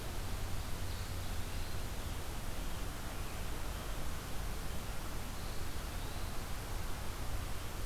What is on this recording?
Eastern Wood-Pewee